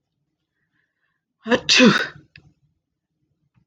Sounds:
Sneeze